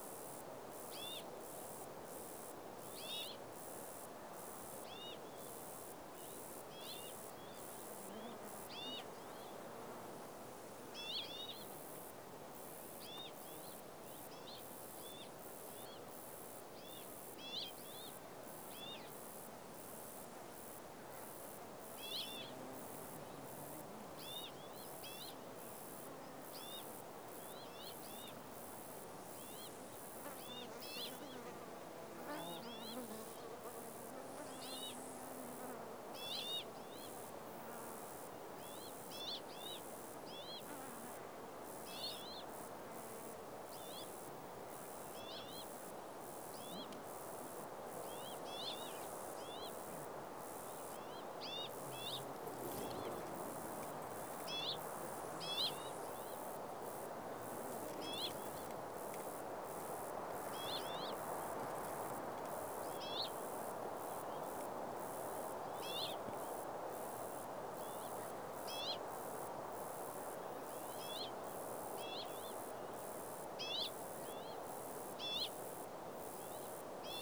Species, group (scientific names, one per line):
Ctenodecticus ramburi
Orthoptera